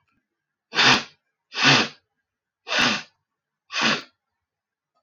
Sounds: Sniff